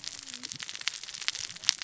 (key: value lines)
label: biophony, cascading saw
recorder: SoundTrap 600 or HydroMoth